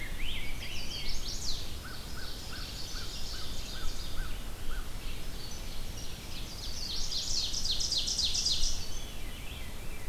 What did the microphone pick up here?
Rose-breasted Grosbeak, Chestnut-sided Warbler, American Crow, Ovenbird, Veery